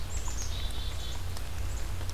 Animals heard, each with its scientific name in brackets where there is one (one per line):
Black-capped Chickadee (Poecile atricapillus)